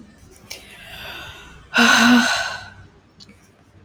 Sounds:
Sigh